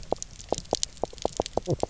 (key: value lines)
label: biophony, knock croak
recorder: SoundTrap 300